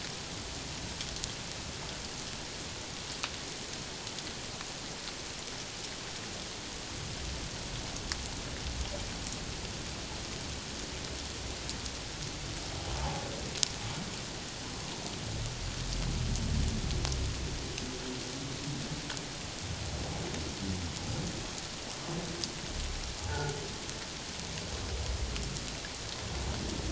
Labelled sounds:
13.0	13.3	humpback whale, 0.78 to 0.94 kHz
23.2	23.5	humpback whale, 0.81 to 1.6 kHz

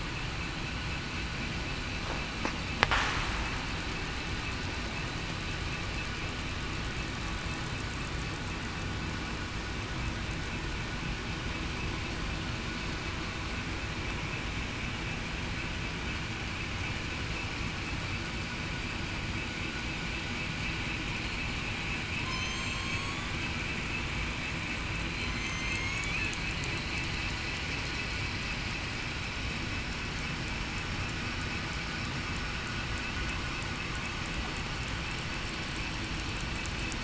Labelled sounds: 22.3	23.3	killer whale, southern resident, 1.1 to 7.8 kHz
25.2	26.0	killer whale, southern resident, 6.1 to 6.7 kHz

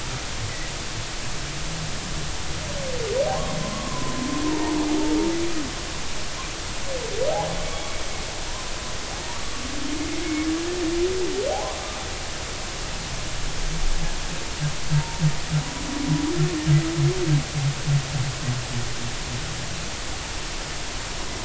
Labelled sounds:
3.6	4.1	humpback whale, 0.96 to 1.2 kHz
4.5	4.8	humpback whale, 0.83 to 1.1 kHz
8.5	9.4	humpback whale, 0.80 to 1.1 kHz
14.9	15.2	humpback whale, 0.86 to 0.99 kHz

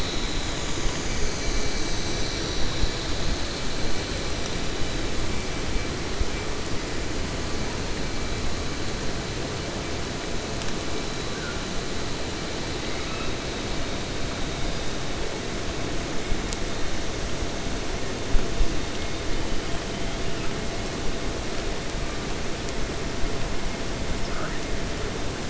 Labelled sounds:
12.7	13.3	killer whale, 1.1 to 2.7 kHz

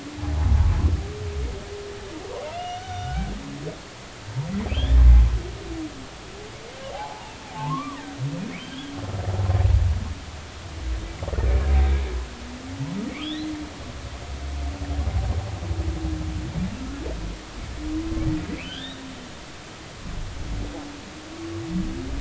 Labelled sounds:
2.5	3.3	humpback whale, 1.4 to 6.1 kHz
4.7	5.0	humpback whale, 3.0 to 3.7 kHz
6.9	8.0	humpback whale, 0.80 to 1.2 kHz
8.6	8.9	humpback whale, 3.0 to 3.5 kHz
13.2	13.5	humpback whale, 3.0 to 4.2 kHz
18.6	19.0	humpback whale, 1.4 to 3.9 kHz

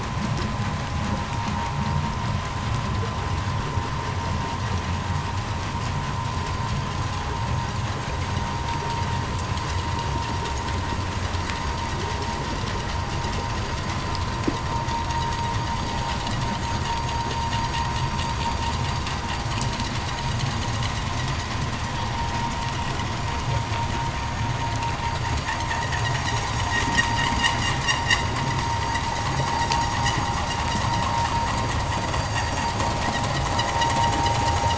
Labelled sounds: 23.0	31.4	vessel noise, 0 to 8.0 kHz

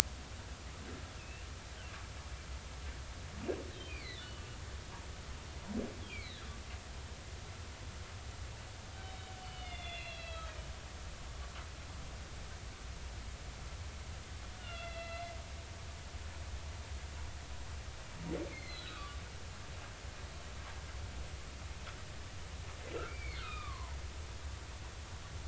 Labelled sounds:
1.2	1.5	humpback whale, 2.5 to 2.9 kHz
3.9	4.4	humpback whale, 1.9 to 4.9 kHz
6.1	6.5	humpback whale, 1.6 to 4.4 kHz
9.0	10.5	humpback whale, 2.0 to 4.3 kHz
14.6	15.3	humpback whale, 1.2 to 4.2 kHz
18.5	19.2	humpback whale, 1.0 to 4.4 kHz
23.1	24.0	humpback whale, 0.83 to 4.5 kHz

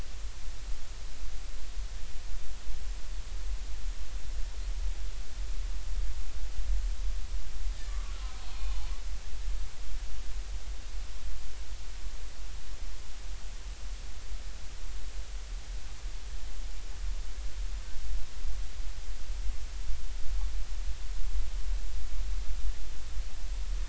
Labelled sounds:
7.7	8.9	killer whale, Bigg's (transient), 0.93 to 2.6 kHz

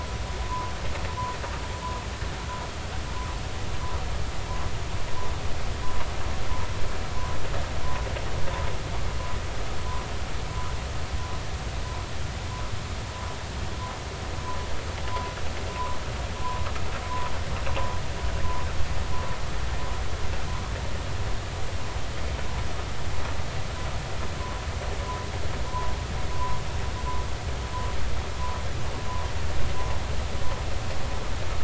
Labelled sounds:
26.3	26.6	humpback whale, 0.93 to 1.1 kHz

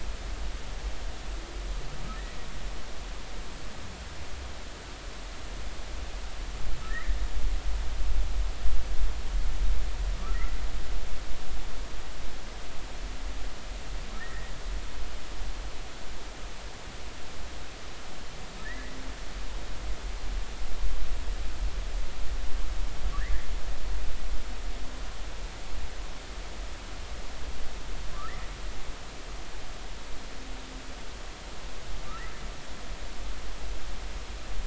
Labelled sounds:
6.9	7.2	humpback whale, 1.7 to 2.1 kHz
14.2	14.5	humpback whale, 1.7 to 2.0 kHz
18.6	19.0	humpback whale, 1.7 to 2.1 kHz
32.1	32.3	humpback whale, 1.2 to 1.4 kHz

